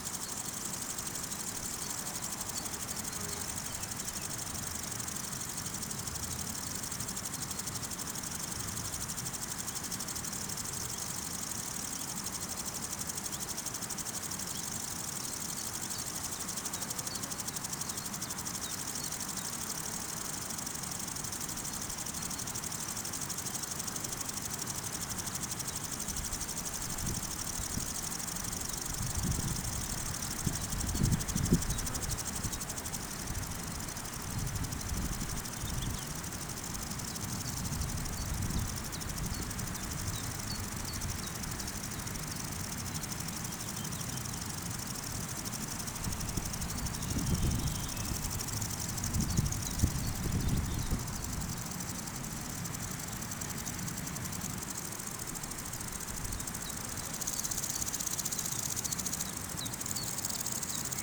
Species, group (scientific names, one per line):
Omocestus viridulus
Orthoptera